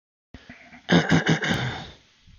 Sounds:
Throat clearing